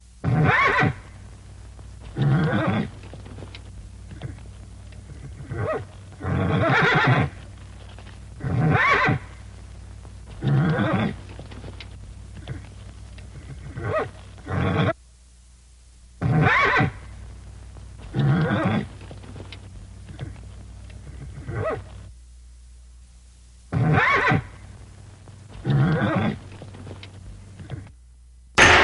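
0.2s A horse neighs sharply. 1.1s
2.1s A horse neighs softly. 3.1s
5.0s A horse neighs sharply. 7.4s
8.4s A horse neighs sharply. 9.3s
10.4s A horse neighs softly. 11.2s
13.7s A horse neighs softly. 14.1s
14.5s A horse neighs sharply. 15.0s
16.2s A horse neighs sharply. 17.1s
18.0s A horse neighs softly. 19.0s
21.2s A horse neighs softly. 22.3s
23.6s A horse neighs sharply. 24.5s
25.4s A horse neighs sharply. 26.6s
28.5s A sharp, hollow metallic thud. 28.8s

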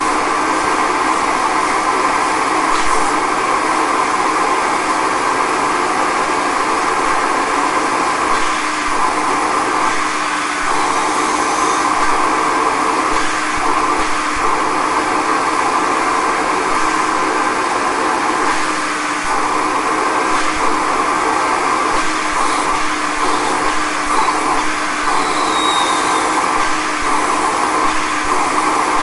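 0.0s A vacuum cleaner makes a steady loud noise. 29.0s
2.5s The suction power of a vacuum cleaner increases as the nozzle becomes blocked. 3.2s
8.3s The suction power of a vacuum cleaner increases as the nozzle becomes blocked. 9.0s
9.8s The suction power of a vacuum cleaner increases as the nozzle becomes blocked. 10.9s
13.1s The suction power of a vacuum cleaner increases as the nozzle becomes blocked. 14.5s
18.4s The suction power of a vacuum cleaner increases as the nozzle becomes blocked. 19.6s
20.2s The suction power of a vacuum cleaner increases as the nozzle becomes blocked. 20.9s
21.8s The suction power of a vacuum cleaner increases as the nozzle becomes blocked. 25.1s
26.4s The suction power of a vacuum cleaner increases as the nozzle becomes blocked. 27.1s
27.7s The suction power of a vacuum cleaner increases as the nozzle becomes blocked. 28.4s

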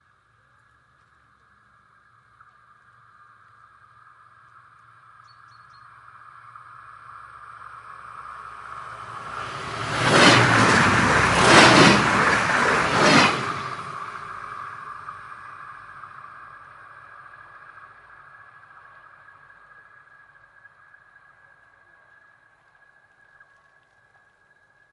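6.5s A train passes at high speed. 18.3s

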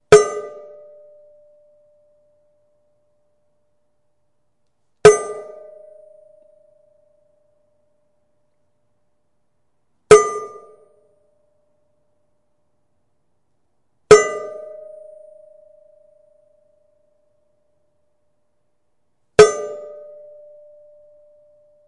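0.0s A brief, loud metallic sound fades out slowly after a strike on metal. 3.5s
5.0s A brief, loud metallic sound fades out slowly after a strike on metal. 8.3s
10.0s A brief, loud metallic sound fades out slowly after a strike on metal. 12.1s
14.0s A brief, loud metallic sound fades out slowly after a strike on metal. 17.8s
19.4s A brief, loud metallic sound fades out slowly after a strike on metal. 21.9s

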